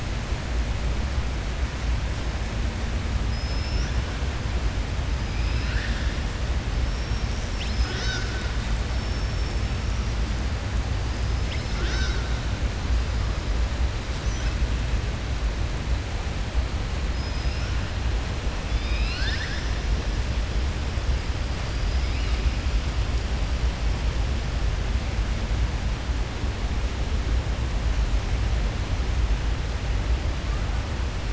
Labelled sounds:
3.2	3.9	killer whale, southern resident, 5.1 to 6.0 kHz
5.3	6.1	killer whale, southern resident, 1.4 to 5.1 kHz

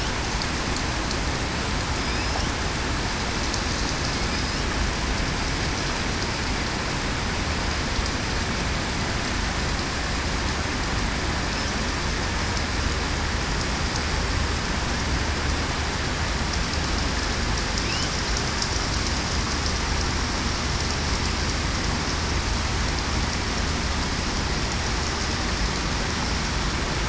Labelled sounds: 2.0	2.4	killer whale, southern resident, 5.0 to 5.2 kHz
4.2	4.6	killer whale, southern resident, 5.0 to 5.1 kHz

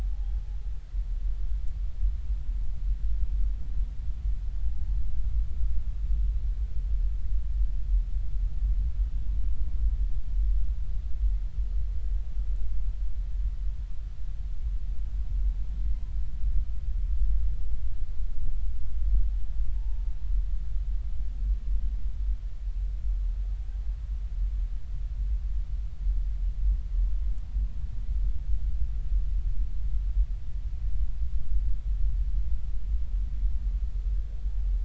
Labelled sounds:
0.0	0.6	humpback whale, 0.80 to 0.86 kHz
19.8	20.0	humpback whale, 0.83 to 0.96 kHz

